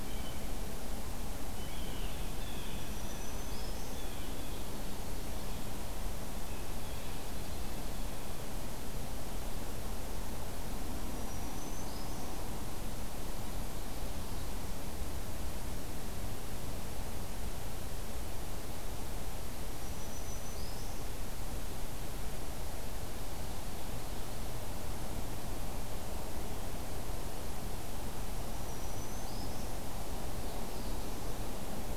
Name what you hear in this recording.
Blue Jay, Black-throated Green Warbler, Black-throated Blue Warbler